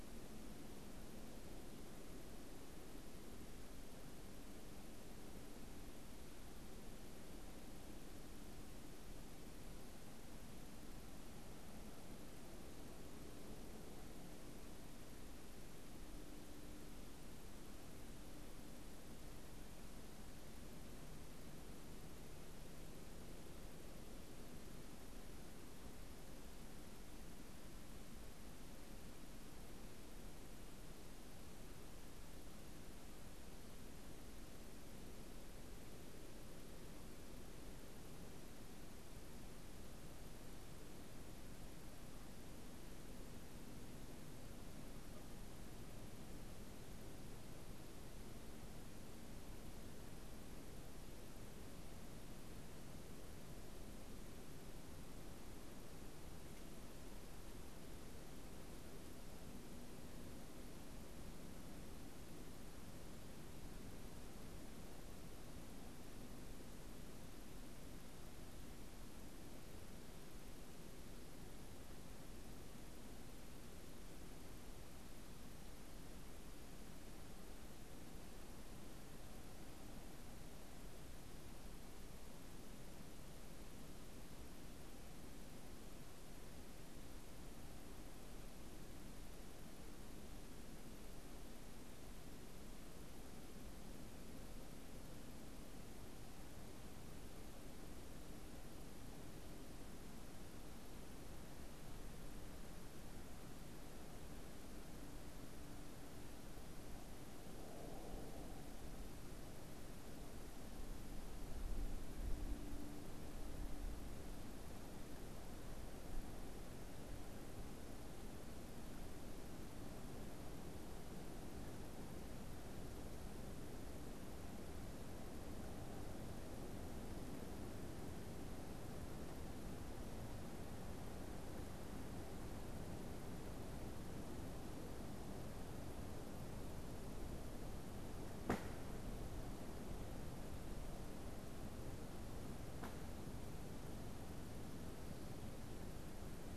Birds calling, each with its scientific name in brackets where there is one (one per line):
Canada Goose (Branta canadensis)